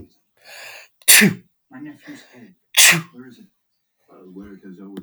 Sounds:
Sneeze